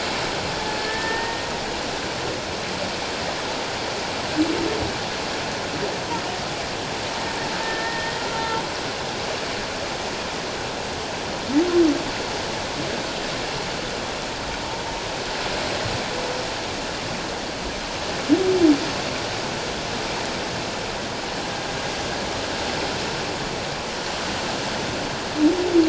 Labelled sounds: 1.0	1.4	humpback whale, 0.88 to 0.97 kHz
7.6	8.6	humpback whale, 1.3 to 1.9 kHz

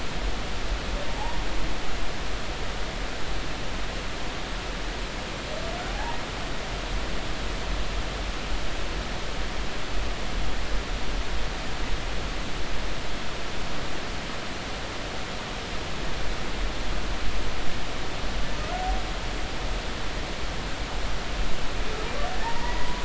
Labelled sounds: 1.1	1.4	humpback whale, 0.80 to 0.99 kHz
5.9	6.2	humpback whale, 0.80 to 0.99 kHz
18.6	18.8	humpback whale, 1.2 to 1.5 kHz
22.4	23.0	humpback whale, 0.83 to 2.0 kHz

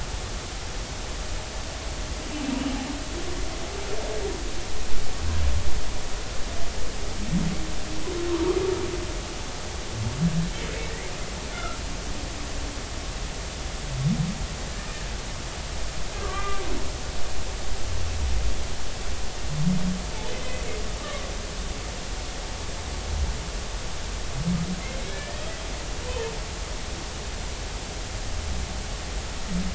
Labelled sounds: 8.3	8.6	humpback whale, 0.90 to 1.3 kHz
11.5	11.8	humpback whale, 1.2 to 1.5 kHz
16.1	16.6	humpback whale, 1.1 to 2.4 kHz
17.1	17.5	humpback whale, 1.5 to 1.7 kHz
21.0	21.2	humpback whale, 1.0 to 1.3 kHz
25.1	25.5	humpback whale, 1.6 to 2.4 kHz

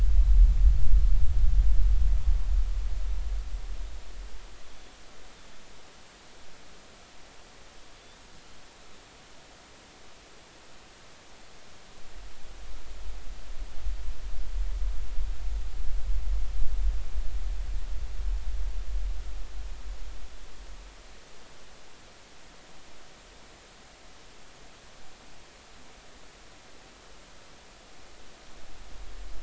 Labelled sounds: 4.7	4.9	Pacific white-sided dolphin, 3.2 to 3.5 kHz

